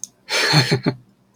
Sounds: Laughter